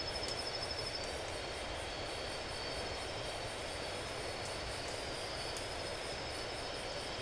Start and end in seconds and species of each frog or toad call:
none
11:15pm

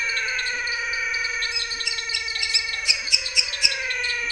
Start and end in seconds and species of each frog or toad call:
0.0	4.3	Dendropsophus nanus
0.0	4.3	Physalaemus albonotatus
0.4	4.3	Leptodactylus labyrinthicus
7:30pm

